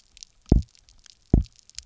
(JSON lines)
{"label": "biophony, double pulse", "recorder": "SoundTrap 300"}